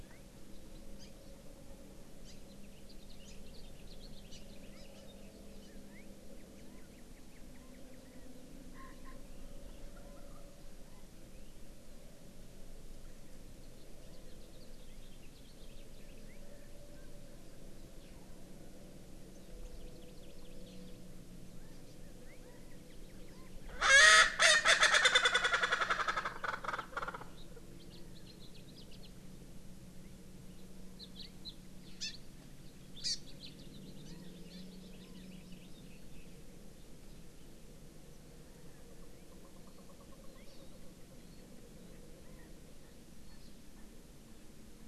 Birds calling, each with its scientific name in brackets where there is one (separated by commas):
House Finch (Haemorhous mexicanus), Erckel's Francolin (Pternistis erckelii), Hawaii Amakihi (Chlorodrepanis virens), Chinese Hwamei (Garrulax canorus)